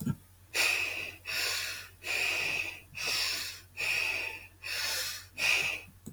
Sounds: Sniff